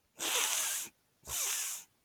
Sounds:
Sniff